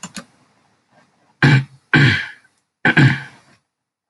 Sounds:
Throat clearing